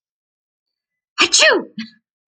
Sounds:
Sneeze